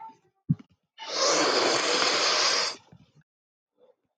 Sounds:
Sniff